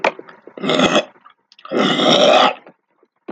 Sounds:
Throat clearing